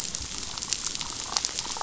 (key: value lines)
label: biophony
recorder: SoundTrap 500